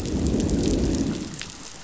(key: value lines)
label: biophony, growl
recorder: SoundTrap 500